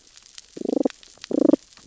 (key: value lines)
label: biophony, damselfish
recorder: SoundTrap 600 or HydroMoth